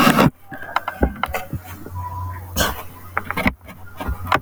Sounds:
Sneeze